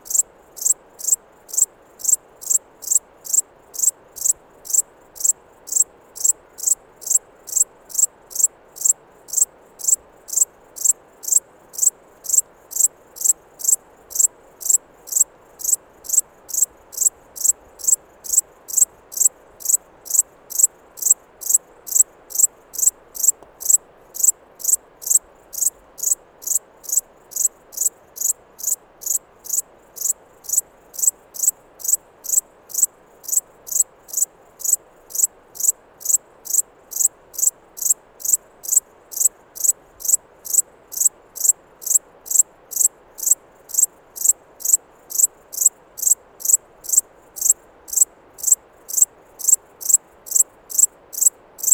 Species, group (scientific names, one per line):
Pholidoptera aptera
Orthoptera